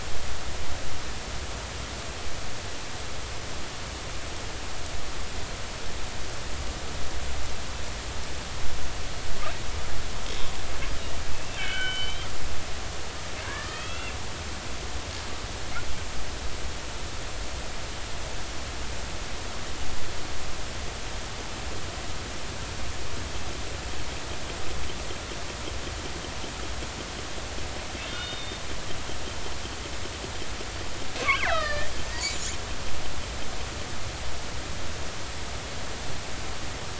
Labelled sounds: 11.3	12.3	killer whale, northern resident, G clan, call N40, 1.4 to 3.2 kHz
13.4	14.2	killer whale, northern resident, G clan, call N40, 0.96 to 2.8 kHz
14.7	15.0	killer whale, northern resident, G clan, call N40, 3.1 to 3.4 kHz
28.1	28.6	killer whale, northern resident, G clan, call N40, 1.3 to 3.7 kHz
31.3	32.5	killer whale, northern resident, G clan, 1.1 to 7.4 kHz

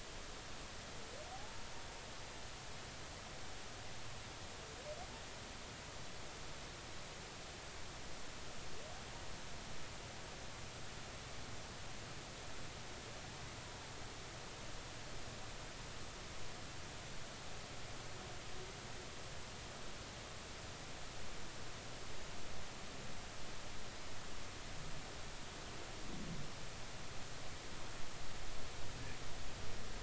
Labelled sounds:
1.3	1.6	humpback whale, 0.80 to 0.99 kHz

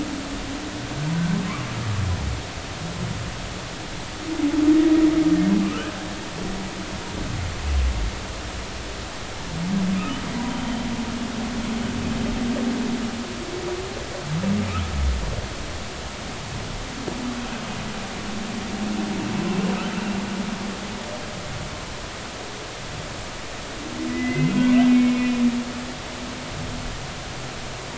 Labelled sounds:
5.6	5.9	humpback whale, 0.99 to 1.7 kHz
24.1	24.5	humpback whale, 1.9 to 2.1 kHz
25.1	25.4	humpback whale, 2.4 to 2.5 kHz

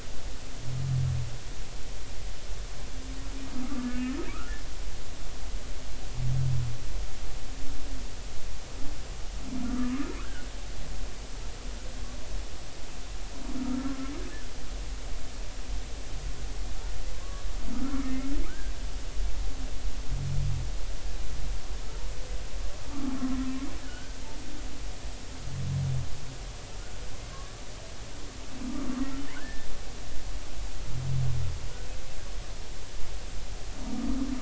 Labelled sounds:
3.6	4.5	humpback whale, 1.1 to 1.9 kHz
9.6	10.5	humpback whale, 1.0 to 1.7 kHz
13.6	14.1	humpback whale, 1.2 to 1.4 kHz
17.7	18.1	humpback whale, 1.2 to 1.5 kHz
19.5	19.7	humpback whale, 1.4 to 1.8 kHz
23.8	24.2	humpback whale, 1.4 to 1.8 kHz
27.3	27.6	humpback whale, 1.0 to 1.2 kHz
29.4	29.7	humpback whale, 1.4 to 1.9 kHz
33.9	34.2	humpback whale, 1.1 to 1.2 kHz

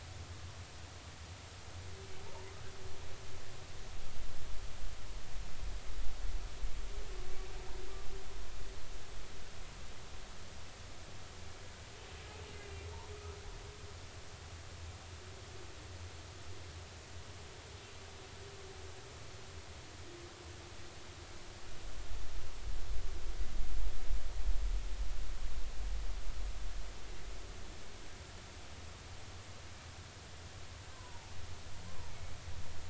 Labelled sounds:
12.6	12.9	humpback whale, 2.3 to 2.5 kHz
30.9	31.3	humpback whale, 0.80 to 1.1 kHz
31.9	32.1	humpback whale, 0.86 to 1.1 kHz

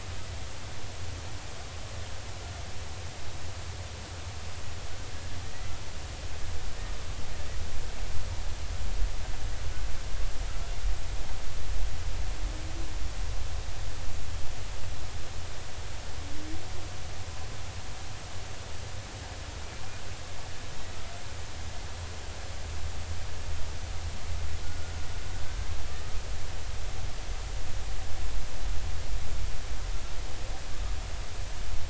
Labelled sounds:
24.6	24.9	humpback whale, 1.4 to 1.5 kHz

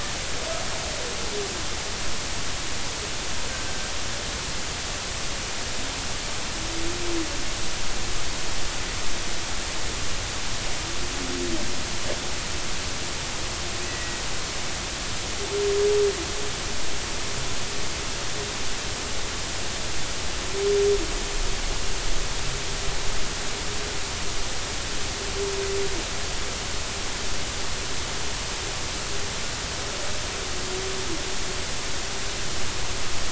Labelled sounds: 3.5	3.7	killer whale, 1.5 to 1.6 kHz
13.9	14.2	killer whale, 1.9 to 2.0 kHz

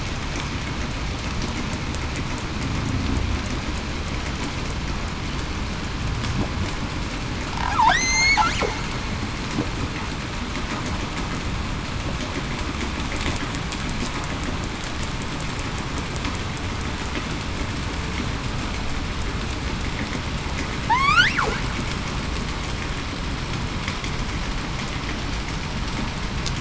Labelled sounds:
7.9	8.4	killer whale, southern resident, 1.4 to 8.0 kHz
20.9	21.3	killer whale, southern resident, 0.80 to 3.7 kHz

